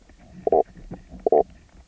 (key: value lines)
label: biophony, knock croak
recorder: SoundTrap 300